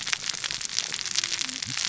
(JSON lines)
{"label": "biophony, cascading saw", "recorder": "SoundTrap 600 or HydroMoth"}